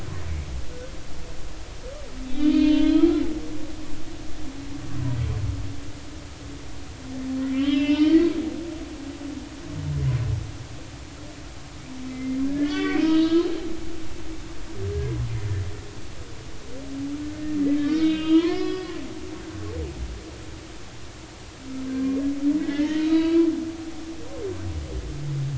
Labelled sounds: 2.3	3.2	humpback whale, 0.86 to 4.4 kHz
7.4	8.3	humpback whale, 1.8 to 5.2 kHz
12.1	13.5	humpback whale, 0.93 to 3.9 kHz
17.3	19.0	humpback whale, 0.93 to 4.2 kHz
21.9	22.2	humpback whale, 1.0 to 1.1 kHz
22.6	23.5	humpback whale, 1.5 to 4.7 kHz

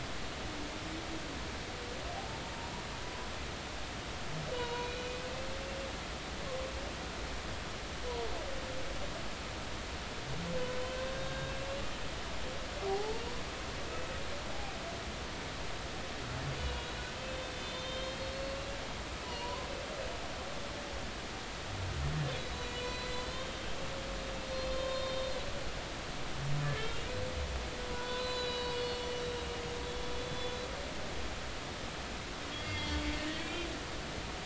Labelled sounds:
2.2	2.4	humpback whale, 0.80 to 0.93 kHz
4.5	5.1	humpback whale, 0.90 to 4.0 kHz
11.1	11.5	humpback whale, 1.6 to 3.8 kHz
12.8	13.2	humpback whale, 0.80 to 0.93 kHz
13.9	14.2	humpback whale, 2.6 to 2.7 kHz
16.6	16.9	humpback whale, 2.8 to 3.0 kHz
17.5	18.6	humpback whale, 3.1 to 4.4 kHz
19.2	19.7	humpback whale, 0.90 to 3.0 kHz
22.4	23.7	humpback whale, 0.96 to 7.6 kHz
24.7	26.9	humpback whale, 0.99 to 4.3 kHz
27.9	29.0	humpback whale, 0.93 to 7.9 kHz
29.4	30.5	humpback whale, 2.8 to 3.5 kHz
32.6	33.0	humpback whale, 2.0 to 4.9 kHz
33.4	33.7	humpback whale, 2.3 to 2.5 kHz

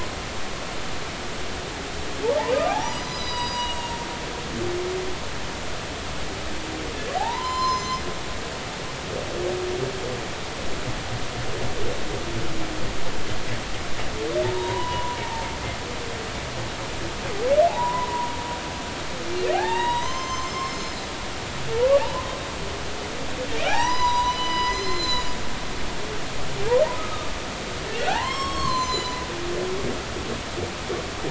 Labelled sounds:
2.7	4.0	humpback whale, 0.80 to 6.8 kHz
7.2	8.0	humpback whale, 0.80 to 7.3 kHz
14.4	15.2	humpback whale, 0.83 to 1.1 kHz
17.7	18.3	humpback whale, 0.80 to 1.1 kHz
19.5	20.8	humpback whale, 0.80 to 6.4 kHz
22.0	22.3	humpback whale, 0.83 to 1.1 kHz
23.6	25.3	humpback whale, 0.80 to 8.0 kHz
26.9	27.3	humpback whale, 1.2 to 1.3 kHz
28.0	29.2	humpback whale, 0.80 to 7.7 kHz

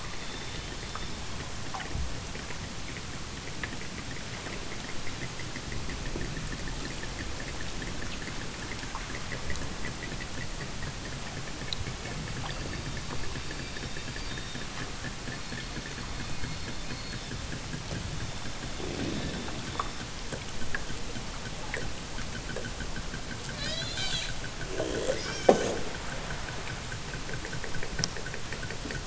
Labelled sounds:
0.0	0.7	killer whale, southern Alaska resident, 2.6 to 6.4 kHz
13.5	14.7	killer whale, southern Alaska resident, 3.1 to 5.4 kHz
15.2	15.9	killer whale, southern Alaska resident, 2.0 to 5.5 kHz
18.0	19.1	killer whale, southern Alaska resident, 3.0 to 5.2 kHz
23.5	24.4	killer whale, southern Alaska resident, 0.26 to 8.0 kHz
24.9	26.1	killer whale, southern Alaska resident, 0.51 to 8.0 kHz

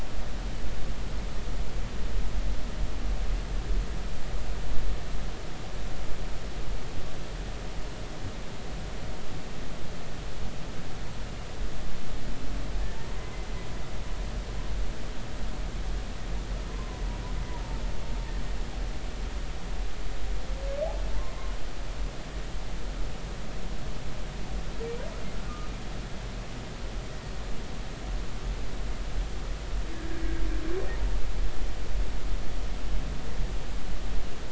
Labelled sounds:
12.9	13.2	humpback whale, 0.86 to 1.1 kHz
16.7	17.0	humpback whale, 0.93 to 1.1 kHz

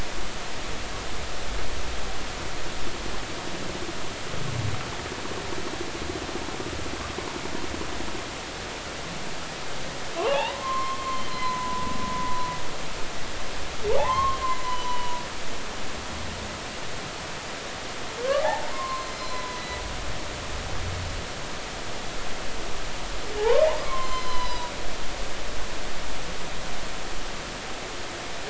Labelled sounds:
10.2	12.6	humpback whale, 0.80 to 4.2 kHz
14.0	15.2	humpback whale, 0.80 to 4.1 kHz
18.4	19.8	humpback whale, 0.80 to 4.3 kHz
23.4	24.7	humpback whale, 0.80 to 6.1 kHz

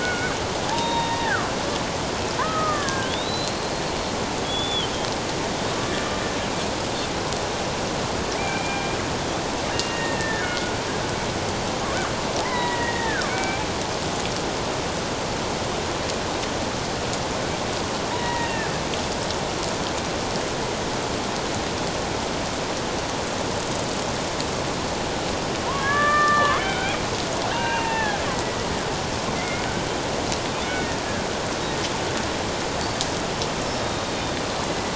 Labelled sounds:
0.0	1.5	killer whale, Bigg's (transient), 0.78 to 3.8 kHz
2.4	3.7	killer whale, Bigg's (transient), 0.94 to 4.3 kHz
4.4	4.9	killer whale, Bigg's (transient), 3.0 to 3.6 kHz
5.8	6.1	killer whale, Bigg's (transient), 1.7 to 1.8 kHz
8.4	9.0	killer whale, Bigg's (transient), 2.2 to 2.5 kHz
9.7	10.7	killer whale, Bigg's (transient), 1.4 to 2.9 kHz
12.4	13.6	killer whale, Bigg's (transient), 0.78 to 2.4 kHz
18.1	18.7	killer whale, Bigg's (transient), 0.88 to 2.8 kHz
25.7	27.0	killer whale, Bigg's (transient), 0.91 to 3.4 kHz
27.5	28.6	killer whale, Bigg's (transient), 0.78 to 2.9 kHz
29.3	29.7	killer whale, Bigg's (transient), 2.0 to 2.2 kHz
33.8	34.2	killer whale, Bigg's (transient), 3.7 to 3.8 kHz

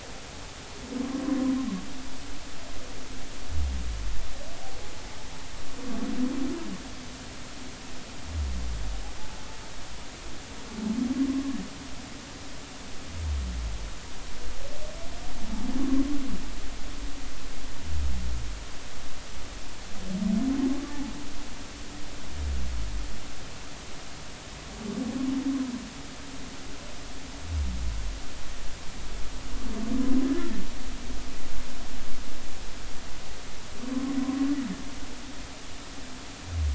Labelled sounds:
11.3	11.6	humpback whale, 0.99 to 1.2 kHz
34.2	34.5	humpback whale, 0.99 to 1.1 kHz

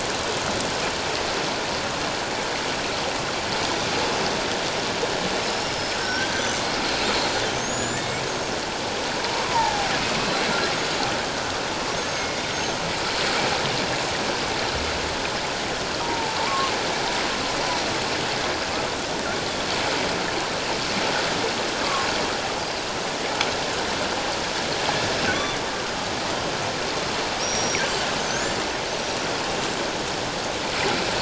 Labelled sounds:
5.7	9.9	killer whale, northern resident, G clan, 0.78 to 7.2 kHz
12.0	12.8	killer whale, northern resident, G clan, 6.3 to 6.5 kHz
16.0	16.7	killer whale, northern resident, G clan, 0.81 to 1.3 kHz
25.3	25.6	killer whale, northern resident, G clan, 3.3 to 3.6 kHz
27.4	27.8	killer whale, northern resident, G clan, 5.4 to 5.8 kHz

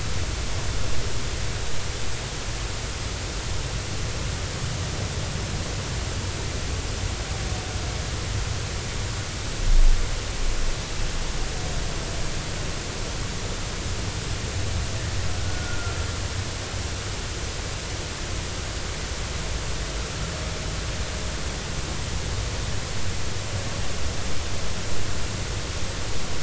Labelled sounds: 15.5	16.0	humpback whale, 1.3 to 1.5 kHz

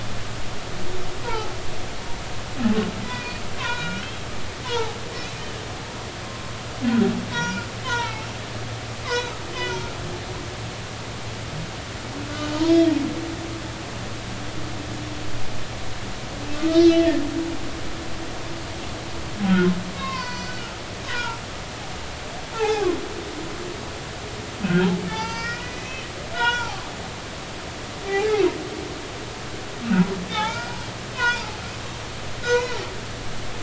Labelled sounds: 1.2	1.5	humpback whale, 0.80 to 1.5 kHz
3.0	4.0	humpback whale, 0.90 to 4.0 kHz
4.6	5.0	humpback whale, 0.80 to 1.6 kHz
6.2	6.5	humpback whale, 1.0 to 1.1 kHz
7.3	8.3	humpback whale, 0.80 to 5.9 kHz
9.5	10.0	humpback whale, 0.86 to 1.5 kHz
12.3	12.9	humpback whale, 2.9 to 3.4 kHz
16.5	17.1	humpback whale, 1.2 to 4.1 kHz
19.5	20.6	humpback whale, 0.93 to 6.0 kHz
21.1	21.4	humpback whale, 0.86 to 2.5 kHz
22.5	22.9	humpback whale, 0.80 to 2.7 kHz
24.7	26.7	humpback whale, 0.83 to 6.0 kHz
28.0	28.4	humpback whale, 0.80 to 0.90 kHz
29.8	31.5	humpback whale, 0.80 to 5.0 kHz
32.4	32.8	humpback whale, 0.83 to 2.6 kHz

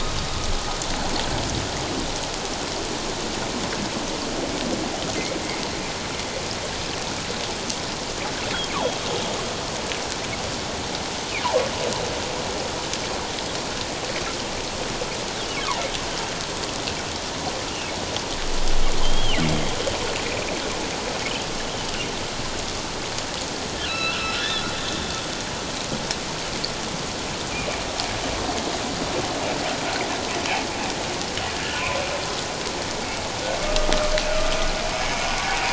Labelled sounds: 19.0	19.4	humpback whale, 2.8 to 3.3 kHz
23.8	24.7	humpback whale, 1.2 to 4.1 kHz

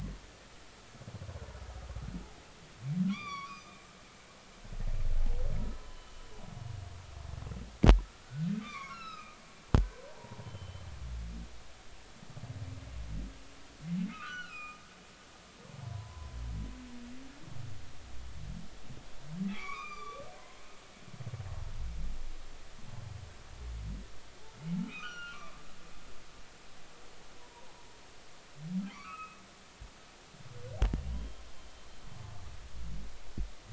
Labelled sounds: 3.1	3.8	humpback whale, 1.0 to 6.0 kHz
5.7	6.2	humpback whale, 0.99 to 3.1 kHz
8.2	10.9	humpback whale, 0.80 to 5.6 kHz
14.1	14.8	humpback whale, 1.1 to 7.6 kHz
15.8	16.3	humpback whale, 0.86 to 1.1 kHz
19.5	20.2	humpback whale, 0.99 to 6.1 kHz
24.9	25.6	humpback whale, 1.0 to 4.4 kHz
27.4	27.8	humpback whale, 0.80 to 1.0 kHz
28.9	29.4	humpback whale, 0.93 to 2.8 kHz
31.1	31.4	humpback whale, 3.0 to 3.3 kHz

